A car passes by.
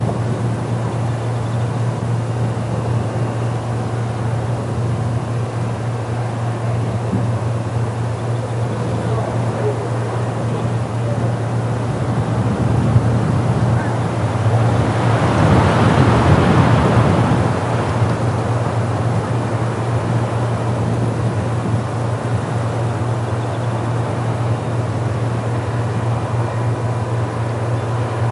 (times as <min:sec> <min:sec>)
0:12.3 0:18.2